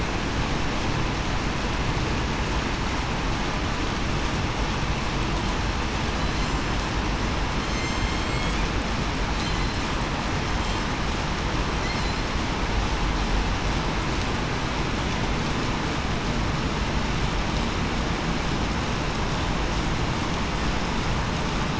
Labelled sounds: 6.2	6.5	killer whale, southern resident, 3.9 to 4.2 kHz
7.6	8.1	killer whale, southern resident, 5.2 to 6.4 kHz
11.9	12.3	killer whale, southern resident, 4.0 to 4.3 kHz

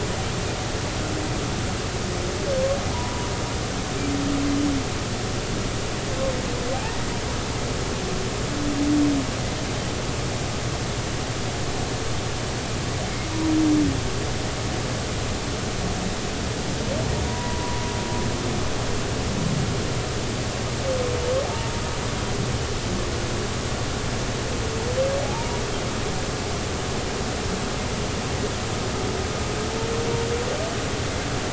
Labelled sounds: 2.9	3.3	humpback whale, 0.90 to 1.1 kHz
6.7	7.0	humpback whale, 0.80 to 1.0 kHz
17.3	17.8	humpback whale, 0.93 to 1.0 kHz
25.2	25.6	humpback whale, 0.80 to 1.0 kHz

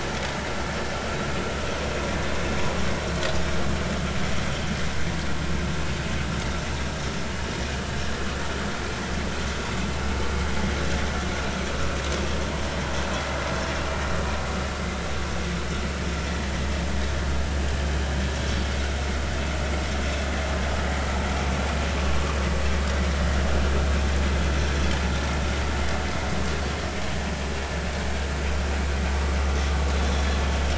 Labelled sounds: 18.4	18.6	vessel noise, 3.3 to 3.5 kHz

